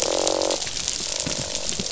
{"label": "biophony, croak", "recorder": "SoundTrap 500"}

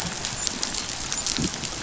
{"label": "biophony, dolphin", "recorder": "SoundTrap 500"}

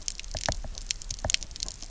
{"label": "biophony, knock", "recorder": "SoundTrap 300"}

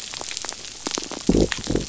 {"label": "biophony", "recorder": "SoundTrap 500"}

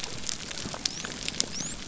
{"label": "biophony", "recorder": "SoundTrap 300"}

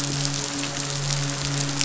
{"label": "biophony, midshipman", "recorder": "SoundTrap 500"}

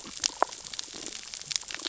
{"label": "biophony, damselfish", "recorder": "SoundTrap 600 or HydroMoth"}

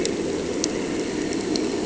{"label": "anthrophony, boat engine", "recorder": "HydroMoth"}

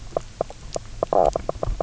{"label": "biophony, knock croak", "recorder": "SoundTrap 300"}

